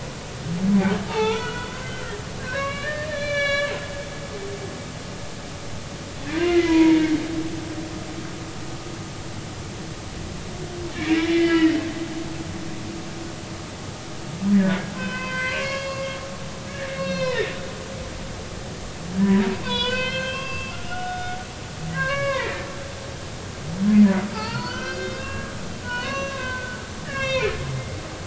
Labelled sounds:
0.0	3.7	humpback whale, 0.80 to 5.8 kHz
6.4	7.0	humpback whale, 0.90 to 2.1 kHz
11.2	11.8	humpback whale, 1.3 to 3.1 kHz
14.9	16.2	humpback whale, 0.96 to 5.0 kHz
16.9	17.5	humpback whale, 0.90 to 6.0 kHz
19.2	22.7	humpback whale, 0.86 to 5.2 kHz
24.3	25.5	humpback whale, 0.80 to 5.8 kHz
25.8	27.6	humpback whale, 0.90 to 6.0 kHz

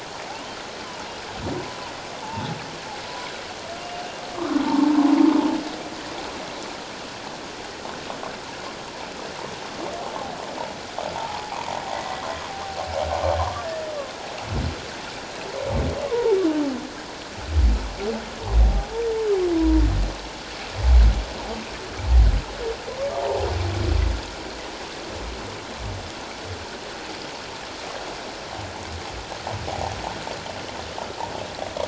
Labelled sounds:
2.2	2.5	humpback whale, 0.81 to 0.97 kHz
4.7	5.0	humpback whale, 0.81 to 1.0 kHz
11.2	12.2	humpback whale, 0.78 to 2.1 kHz
16.0	16.4	humpback whale, 0.81 to 1.2 kHz
19.6	19.8	humpback whale, 0.94 to 1.0 kHz
23.1	23.5	humpback whale, 0.78 to 1.0 kHz

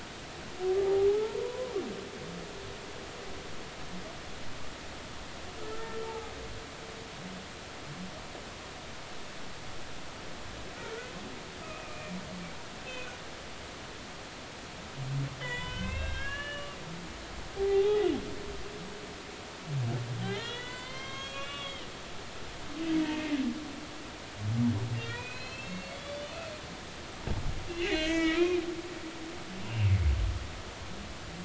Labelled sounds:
1.4	1.8	humpback whale, 0.90 to 1.1 kHz
5.6	6.3	humpback whale, 0.80 to 1.9 kHz
11.6	12.2	humpback whale, 2.3 to 2.6 kHz
12.8	13.1	humpback whale, 2.5 to 2.7 kHz
15.4	16.8	humpback whale, 0.90 to 3.8 kHz
17.6	18.1	humpback whale, 0.80 to 3.8 kHz
20.2	21.9	humpback whale, 0.96 to 6.0 kHz
23.0	23.3	humpback whale, 1.8 to 1.9 kHz
25.0	26.4	humpback whale, 1.8 to 4.7 kHz
27.7	28.6	humpback whale, 1.2 to 5.6 kHz
29.6	29.9	humpback whale, 2.6 to 2.8 kHz

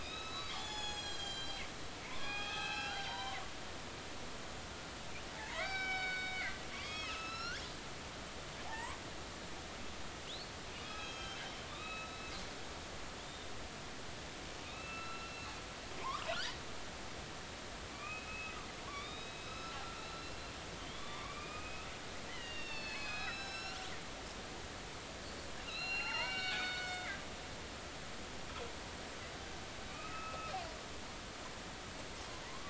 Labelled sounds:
0.0	3.4	killer whale, northern resident, A clan, AB subclan, 0.80 to 7.7 kHz
5.3	7.6	killer whale, northern resident, A clan, AB subclan, 0.83 to 6.0 kHz
8.7	9.0	killer whale, northern resident, A clan, AB subclan, 0.80 to 1.2 kHz
10.3	13.5	killer whale, northern resident, A clan, AB subclan, 1.1 to 6.6 kHz
14.6	16.6	killer whale, northern resident, A clan, AB subclan, 0.83 to 4.1 kHz
17.9	18.6	killer whale, northern resident, A clan, AB subclan, 1.1 to 2.7 kHz
18.8	20.3	killer whale, northern resident, A clan, AB subclan, 0.93 to 5.2 kHz
20.8	21.9	killer whale, northern resident, A clan, AB subclan, 0.90 to 5.0 kHz
22.3	23.8	killer whale, northern resident, A clan, AB subclan, 1.2 to 7.0 kHz
25.6	27.1	killer whale, northern resident, A clan, AB subclan, 0.80 to 5.2 kHz
29.9	30.5	killer whale, northern resident, A clan, AB subclan, 1.2 to 2.7 kHz
32.4	32.6	killer whale, northern resident, A clan, AB subclan, 0.90 to 1.2 kHz

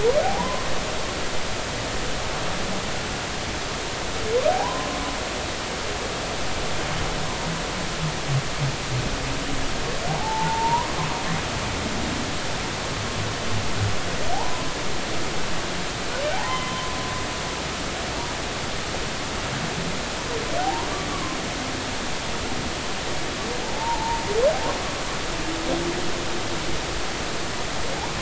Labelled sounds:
0.2	0.7	humpback whale, 0.80 to 1.1 kHz
4.5	4.9	humpback whale, 0.80 to 1.1 kHz
10.1	11.0	humpback whale, 0.80 to 1.1 kHz
14.3	14.7	humpback whale, 0.80 to 1.1 kHz
16.3	16.9	humpback whale, 0.80 to 3.1 kHz
20.6	21.4	humpback whale, 0.80 to 1.2 kHz
23.6	24.2	humpback whale, 0.80 to 1.0 kHz

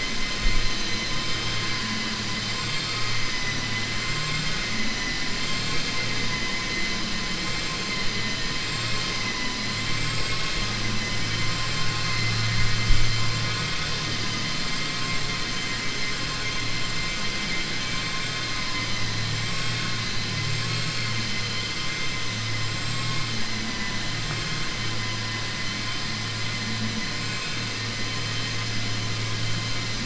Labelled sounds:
4.1	4.6	vessel noise, 1.1 to 3.7 kHz
5.4	5.9	vessel noise, 1.3 to 4.3 kHz
27.2	27.6	vessel noise, 1.5 to 4.3 kHz

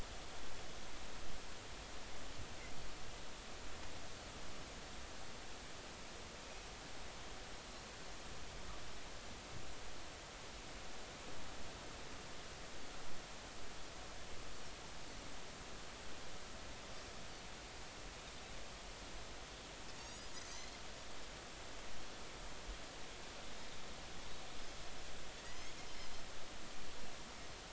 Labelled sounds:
20.0	20.4	Pacific white-sided dolphin, 4.5 to 8.0 kHz
25.4	25.7	Pacific white-sided dolphin, 1.8 to 2.3 kHz

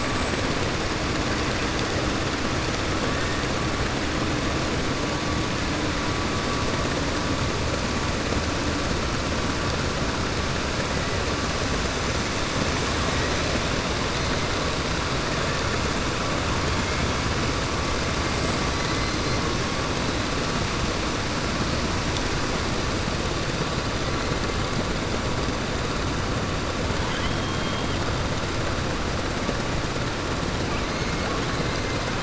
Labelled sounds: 27.0	28.0	killer whale, 1.0 to 3.4 kHz

